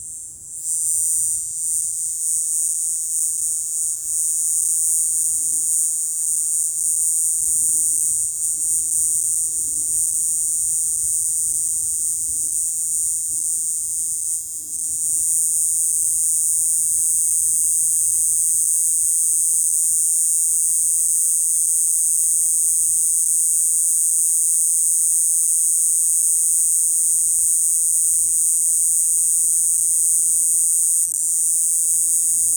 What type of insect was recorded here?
cicada